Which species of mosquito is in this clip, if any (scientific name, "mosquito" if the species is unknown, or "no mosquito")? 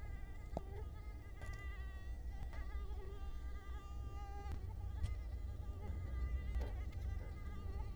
Culex quinquefasciatus